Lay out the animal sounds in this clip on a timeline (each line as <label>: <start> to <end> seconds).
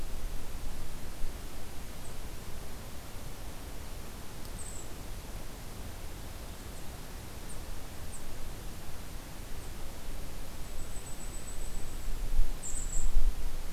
Golden-crowned Kinglet (Regulus satrapa): 4.4 to 5.2 seconds
Blackpoll Warbler (Setophaga striata): 10.5 to 12.2 seconds
Golden-crowned Kinglet (Regulus satrapa): 12.4 to 13.3 seconds